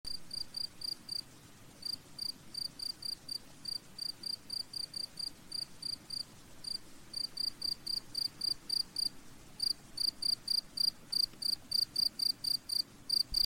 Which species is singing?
Gryllus campestris